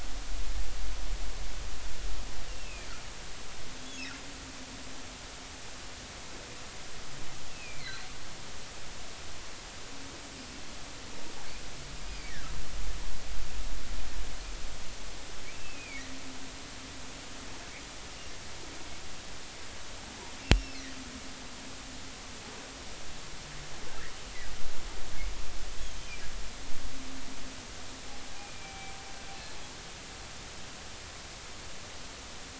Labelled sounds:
2.5	2.9	humpback whale, 2.3 to 2.9 kHz
7.5	8.1	humpback whale, 2.2 to 4.5 kHz
12.1	12.3	humpback whale, 2.1 to 2.5 kHz
15.5	16.0	humpback whale, 2.1 to 2.7 kHz
20.4	20.8	humpback whale, 2.6 to 5.6 kHz
28.3	28.9	humpback whale, 2.3 to 2.5 kHz

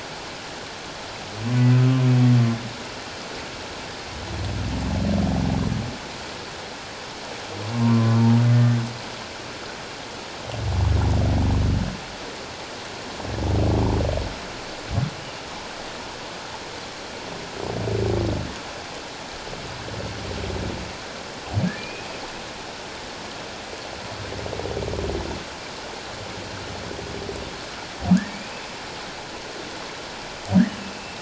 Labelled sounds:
1.5	1.8	humpback whale, 1.9 to 2.0 kHz
7.7	8.2	humpback whale, 0.91 to 1.2 kHz
21.8	22.1	humpback whale, 2.3 to 2.6 kHz
30.8	31.1	humpback whale, 2.6 to 2.7 kHz

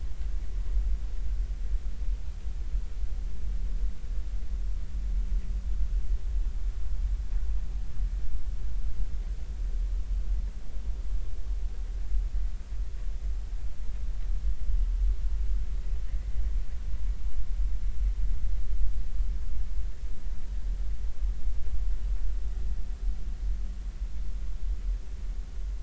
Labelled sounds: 16.1	16.3	killer whale, northern resident, 1.8 to 2.2 kHz

